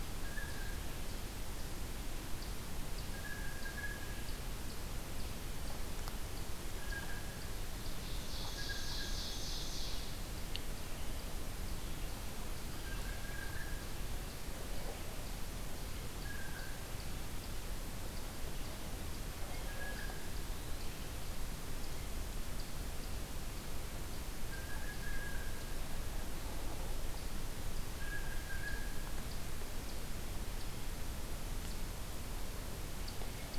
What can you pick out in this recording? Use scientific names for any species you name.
Cyanocitta cristata, Tamias striatus, Seiurus aurocapilla